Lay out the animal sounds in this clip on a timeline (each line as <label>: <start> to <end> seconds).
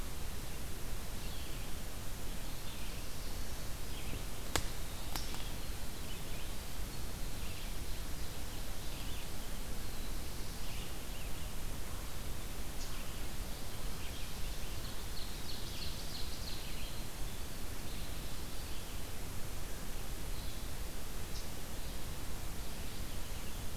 Red-eyed Vireo (Vireo olivaceus): 1.0 to 23.8 seconds
Winter Wren (Troglodytes hiemalis): 4.8 to 8.1 seconds
Black-throated Blue Warbler (Setophaga caerulescens): 9.7 to 11.0 seconds
Winter Wren (Troglodytes hiemalis): 13.9 to 19.2 seconds
Ovenbird (Seiurus aurocapilla): 14.6 to 17.1 seconds